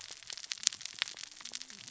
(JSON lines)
{"label": "biophony, cascading saw", "recorder": "SoundTrap 600 or HydroMoth"}